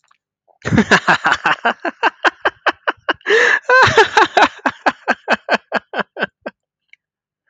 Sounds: Laughter